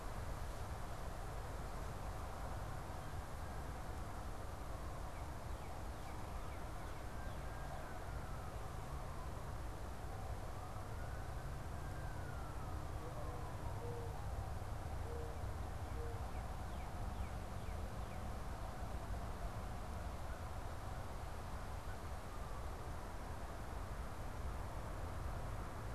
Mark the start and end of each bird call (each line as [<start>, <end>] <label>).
[13.05, 15.55] Mourning Dove (Zenaida macroura)
[17.25, 18.45] Northern Cardinal (Cardinalis cardinalis)